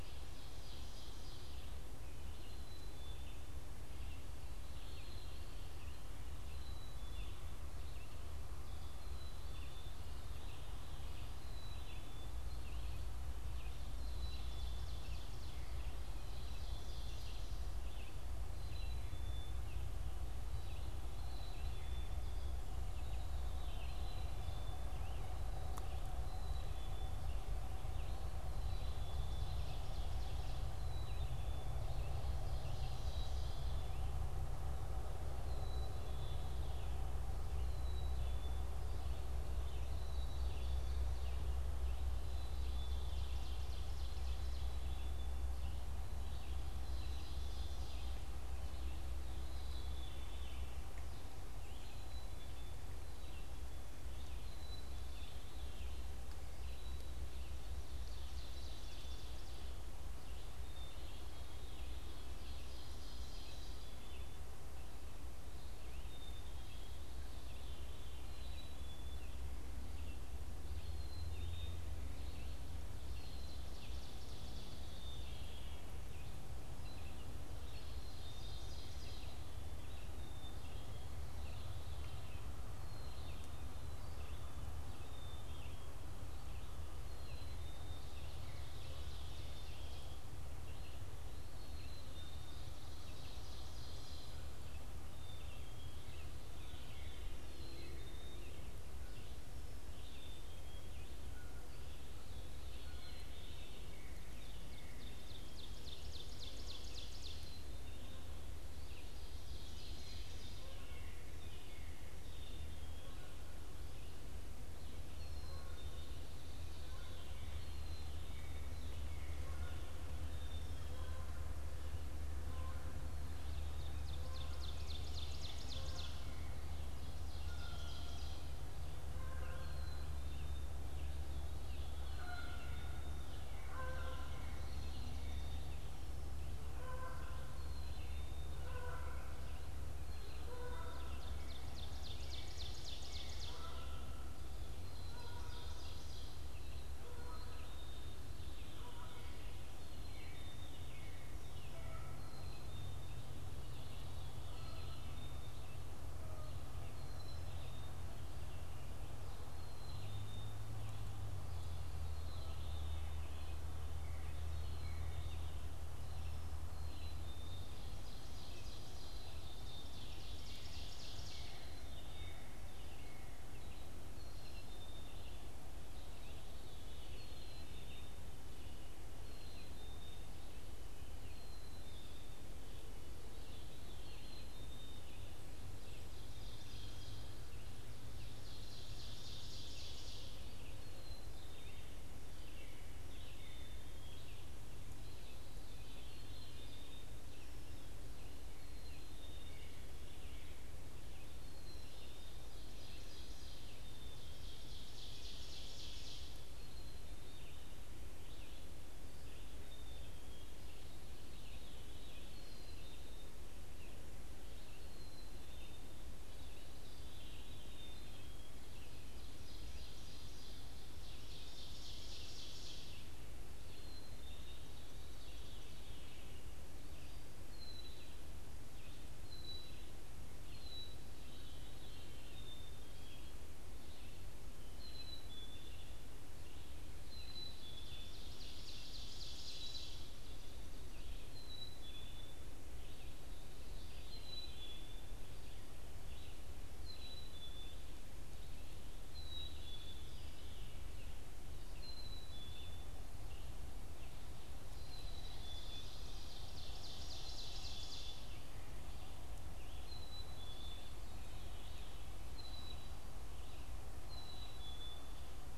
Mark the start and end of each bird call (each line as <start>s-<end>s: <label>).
0.0s-48.6s: Ovenbird (Seiurus aurocapilla)
0.0s-53.0s: Black-capped Chickadee (Poecile atricapillus)
0.0s-109.7s: Red-eyed Vireo (Vireo olivaceus)
54.3s-108.9s: Black-capped Chickadee (Poecile atricapillus)
57.9s-64.1s: Ovenbird (Seiurus aurocapilla)
73.1s-104.1s: Veery (Catharus fuscescens)
73.3s-79.8s: Ovenbird (Seiurus aurocapilla)
87.9s-94.8s: Ovenbird (Seiurus aurocapilla)
104.1s-108.0s: Ovenbird (Seiurus aurocapilla)
109.2s-111.0s: Ovenbird (Seiurus aurocapilla)
110.1s-166.3s: Red-eyed Vireo (Vireo olivaceus)
110.4s-156.7s: Canada Goose (Branta canadensis)
112.1s-165.8s: Black-capped Chickadee (Poecile atricapillus)
123.3s-128.7s: Ovenbird (Seiurus aurocapilla)
140.5s-146.6s: Ovenbird (Seiurus aurocapilla)
166.6s-222.2s: Red-eyed Vireo (Vireo olivaceus)
166.7s-222.7s: Black-capped Chickadee (Poecile atricapillus)
167.7s-171.8s: Ovenbird (Seiurus aurocapilla)
176.0s-218.8s: Veery (Catharus fuscescens)
186.1s-190.8s: Ovenbird (Seiurus aurocapilla)
202.3s-206.5s: Ovenbird (Seiurus aurocapilla)
218.9s-223.2s: Ovenbird (Seiurus aurocapilla)
223.5s-265.6s: Red-eyed Vireo (Vireo olivaceus)
223.6s-250.3s: Black-capped Chickadee (Poecile atricapillus)
224.7s-250.8s: Veery (Catharus fuscescens)
238.0s-240.7s: Ovenbird (Seiurus aurocapilla)
251.5s-265.6s: Black-capped Chickadee (Poecile atricapillus)
255.0s-258.7s: Ovenbird (Seiurus aurocapilla)
261.2s-265.6s: Veery (Catharus fuscescens)